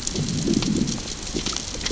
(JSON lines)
{"label": "biophony, growl", "recorder": "SoundTrap 600 or HydroMoth"}